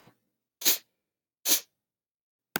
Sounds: Sniff